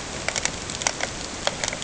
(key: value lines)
label: ambient
recorder: HydroMoth